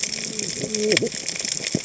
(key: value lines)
label: biophony, cascading saw
recorder: HydroMoth